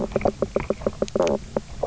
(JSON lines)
{"label": "biophony, knock croak", "recorder": "SoundTrap 300"}